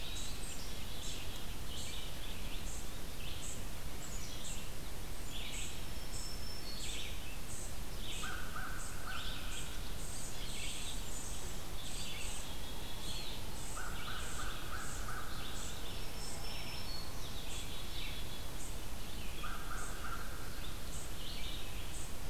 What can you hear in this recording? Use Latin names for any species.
Contopus virens, Vireo olivaceus, unknown mammal, Poecile atricapillus, Setophaga virens, Corvus brachyrhynchos